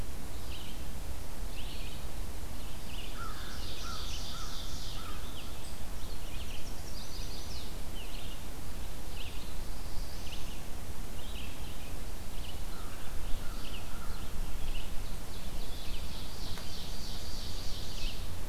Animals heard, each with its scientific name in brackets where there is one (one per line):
Red-eyed Vireo (Vireo olivaceus)
Ovenbird (Seiurus aurocapilla)
Black-throated Blue Warbler (Setophaga caerulescens)
American Crow (Corvus brachyrhynchos)
Chestnut-sided Warbler (Setophaga pensylvanica)